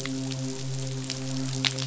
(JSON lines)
{"label": "biophony, midshipman", "recorder": "SoundTrap 500"}